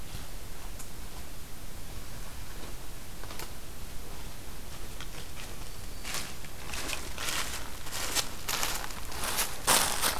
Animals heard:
forest ambience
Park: Acadia National Park